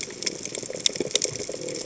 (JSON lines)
{"label": "biophony, chatter", "recorder": "HydroMoth"}
{"label": "biophony", "recorder": "HydroMoth"}